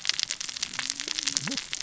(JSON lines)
{"label": "biophony, cascading saw", "recorder": "SoundTrap 600 or HydroMoth"}